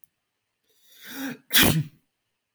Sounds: Sneeze